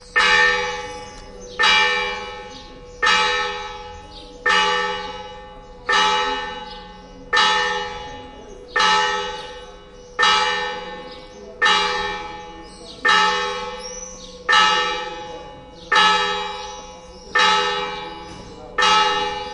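Distinct, isolated bell strikes with clear resonance and faint background voices. 0.0 - 19.5

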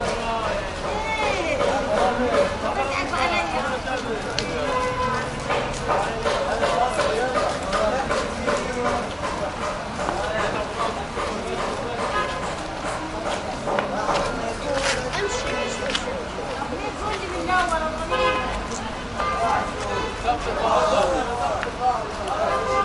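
A dog barks in the background. 0.0 - 2.9
Noisy street with Arabic speech, a dog barking, and car horns honking. 0.0 - 19.7
A dog barks. 4.5 - 5.3
A dog barks in the background. 5.8 - 15.4
A car honks. 12.1 - 12.3
A car honks. 15.1 - 16.0
A car honks. 18.0 - 22.8

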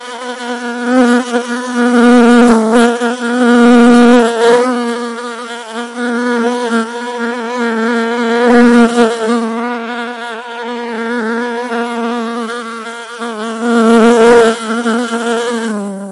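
A bee is buzzing intensely and irregularly nearby. 0.0 - 16.1

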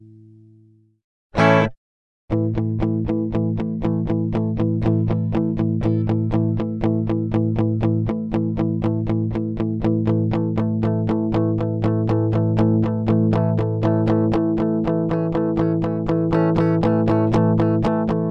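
An electric guitar is playing. 1.3 - 1.8
An electric guitar is played in a repeated pattern. 2.3 - 18.3

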